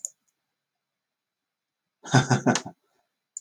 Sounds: Laughter